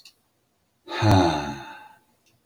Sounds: Sigh